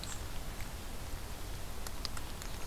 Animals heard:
forest ambience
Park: Marsh-Billings-Rockefeller National Historical Park